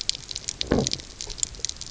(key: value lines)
label: biophony
recorder: SoundTrap 300